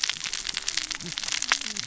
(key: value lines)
label: biophony, cascading saw
recorder: SoundTrap 600 or HydroMoth